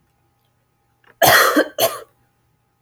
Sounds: Cough